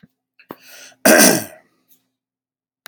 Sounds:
Throat clearing